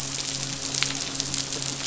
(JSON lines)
{"label": "biophony, midshipman", "recorder": "SoundTrap 500"}